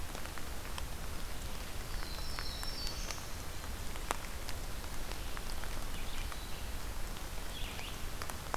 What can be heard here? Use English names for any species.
Black-throated Blue Warbler, Black-throated Green Warbler, Red-eyed Vireo